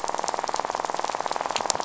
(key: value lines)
label: biophony, rattle
recorder: SoundTrap 500